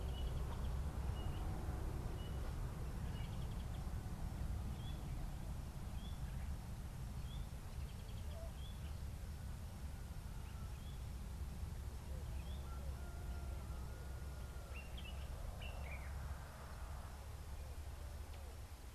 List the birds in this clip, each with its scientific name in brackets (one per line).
Common Bulbul (Pycnonotus barbatus)
White-browed Robin-Chat (Cossypha heuglini)